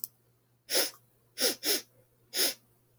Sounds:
Sniff